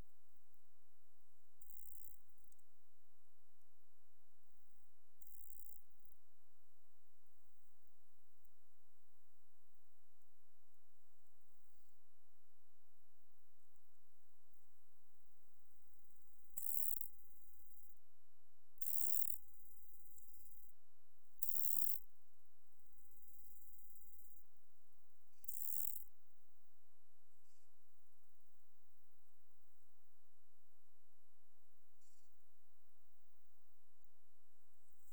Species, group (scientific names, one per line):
Chorthippus albomarginatus
Orthoptera